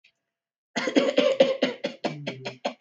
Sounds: Cough